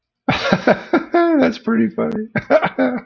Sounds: Laughter